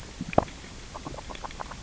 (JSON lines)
{"label": "biophony, grazing", "recorder": "SoundTrap 600 or HydroMoth"}